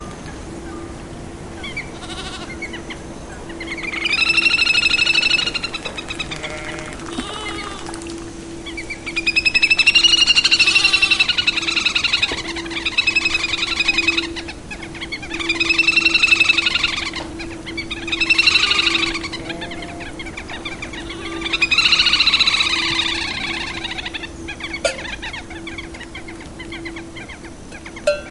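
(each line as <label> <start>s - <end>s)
A stream flows steadily with a soft, continuous murmur. 0.0s - 28.3s
A goat bleats. 1.9s - 2.8s
Birds chirping continuously with varying intensity. 2.5s - 28.3s
A bird rapidly flapping its wings on the water. 6.1s - 8.2s
Goats bleating repeatedly. 6.3s - 8.2s
Goats bleat loudly. 10.5s - 11.5s
Goats bleat repeatedly in the distance. 18.5s - 21.7s
A cowbell clanks once. 24.8s - 25.1s
A cowbell clanks once. 28.0s - 28.3s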